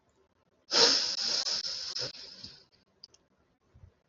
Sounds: Sniff